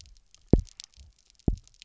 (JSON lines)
{"label": "biophony, double pulse", "recorder": "SoundTrap 300"}